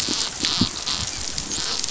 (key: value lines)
label: biophony, dolphin
recorder: SoundTrap 500